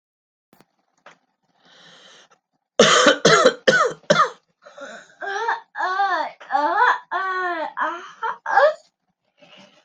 {"expert_labels": [{"quality": "good", "cough_type": "dry", "dyspnea": false, "wheezing": false, "stridor": false, "choking": false, "congestion": false, "nothing": true, "diagnosis": "upper respiratory tract infection", "severity": "mild"}], "age": 47, "gender": "male", "respiratory_condition": false, "fever_muscle_pain": false, "status": "healthy"}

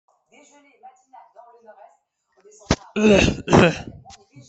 {"expert_labels": [{"quality": "ok", "cough_type": "dry", "dyspnea": false, "wheezing": false, "stridor": false, "choking": false, "congestion": false, "nothing": true, "diagnosis": "upper respiratory tract infection", "severity": "mild"}], "age": 96, "gender": "female", "respiratory_condition": true, "fever_muscle_pain": false, "status": "COVID-19"}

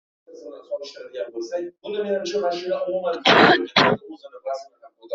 {"expert_labels": [{"quality": "poor", "cough_type": "unknown", "dyspnea": false, "wheezing": false, "stridor": false, "choking": false, "congestion": false, "nothing": true, "diagnosis": "lower respiratory tract infection", "severity": "mild"}, {"quality": "poor", "cough_type": "unknown", "dyspnea": false, "wheezing": false, "stridor": false, "choking": false, "congestion": false, "nothing": true, "diagnosis": "COVID-19", "severity": "mild"}, {"quality": "ok", "cough_type": "dry", "dyspnea": false, "wheezing": false, "stridor": false, "choking": false, "congestion": false, "nothing": true, "diagnosis": "healthy cough", "severity": "pseudocough/healthy cough"}, {"quality": "ok", "cough_type": "dry", "dyspnea": false, "wheezing": false, "stridor": false, "choking": false, "congestion": false, "nothing": true, "diagnosis": "COVID-19", "severity": "mild"}], "age": 18, "gender": "female", "respiratory_condition": false, "fever_muscle_pain": false, "status": "symptomatic"}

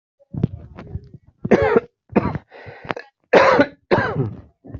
{"expert_labels": [{"quality": "good", "cough_type": "dry", "dyspnea": false, "wheezing": false, "stridor": false, "choking": false, "congestion": false, "nothing": true, "diagnosis": "upper respiratory tract infection", "severity": "mild"}], "age": 52, "gender": "male", "respiratory_condition": false, "fever_muscle_pain": false, "status": "symptomatic"}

